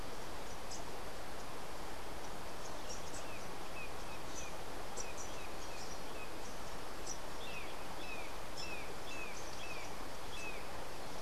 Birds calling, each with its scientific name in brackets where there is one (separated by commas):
Brown Jay (Psilorhinus morio)